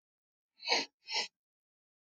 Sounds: Sniff